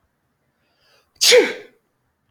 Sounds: Sneeze